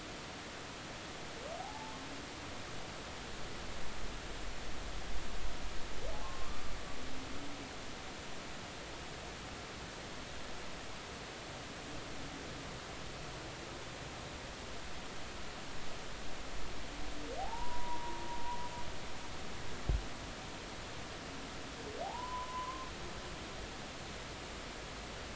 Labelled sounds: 1.6	2.0	humpback whale, 0.80 to 0.93 kHz
6.1	6.6	humpback whale, 0.80 to 1.2 kHz
17.4	18.2	humpback whale, 0.80 to 1.1 kHz
22.0	22.9	humpback whale, 0.80 to 1.2 kHz

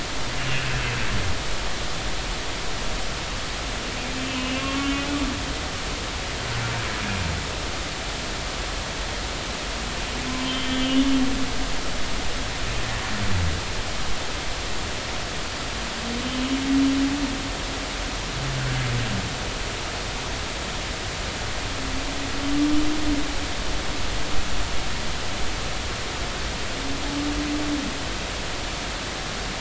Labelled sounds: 4.3	5.1	humpback whale, 2.2 to 3.1 kHz
5.6	5.9	humpback whale, 1.0 to 1.2 kHz
10.4	11.1	humpback whale, 2.8 to 3.3 kHz

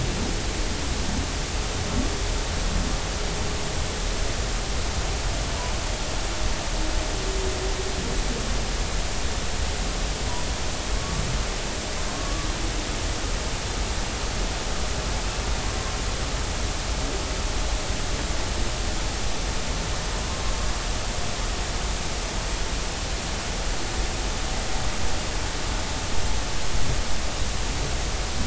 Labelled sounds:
11.0	11.2	humpback whale, 1.1 to 1.2 kHz
12.1	12.5	humpback whale, 1.1 to 1.2 kHz

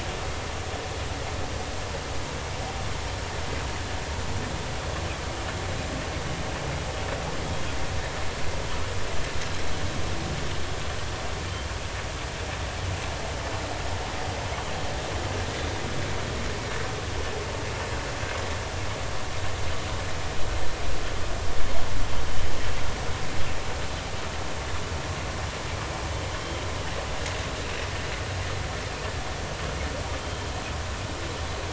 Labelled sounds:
26.4	26.6	humpback whale, 3.1 to 3.2 kHz
30.2	30.5	humpback whale, 3.1 to 3.3 kHz

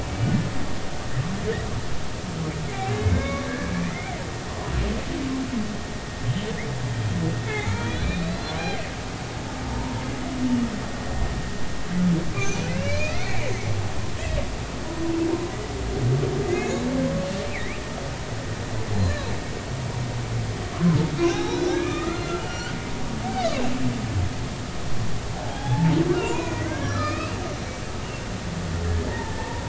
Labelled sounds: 2.9	4.1	humpback whale, 1.1 to 2.4 kHz
7.4	8.6	humpback whale, 0.80 to 4.3 kHz
9.7	10.0	humpback whale, 0.86 to 1.1 kHz
12.3	13.5	humpback whale, 1.9 to 2.9 kHz
16.4	16.8	humpback whale, 2.0 to 6.9 kHz
17.5	17.8	humpback whale, 1.8 to 2.8 kHz
19.0	19.3	humpback whale, 3.8 to 4.2 kHz
21.2	22.7	humpback whale, 0.80 to 6.0 kHz
25.5	27.3	humpback whale, 0.80 to 4.2 kHz
28.8	29.6	humpback whale, 0.83 to 2.0 kHz

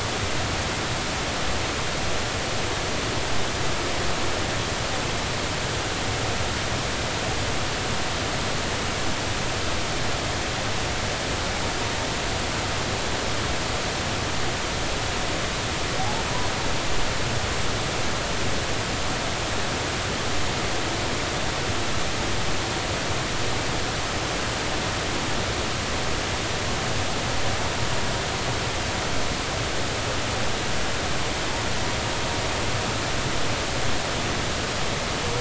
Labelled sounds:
16.0	16.2	humpback whale, 0.80 to 0.93 kHz

